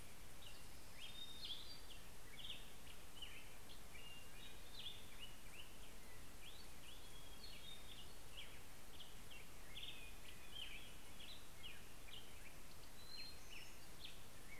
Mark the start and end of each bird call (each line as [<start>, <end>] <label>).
[0.00, 14.59] Black-headed Grosbeak (Pheucticus melanocephalus)
[0.83, 2.93] Hermit Thrush (Catharus guttatus)
[6.83, 9.43] Hermit Thrush (Catharus guttatus)
[12.53, 14.59] Hermit Thrush (Catharus guttatus)